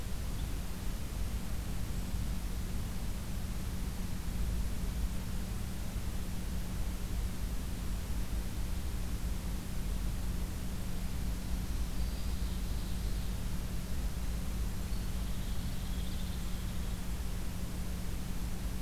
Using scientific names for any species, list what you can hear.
Seiurus aurocapilla, unidentified call